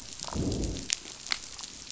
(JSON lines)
{"label": "biophony, growl", "recorder": "SoundTrap 500"}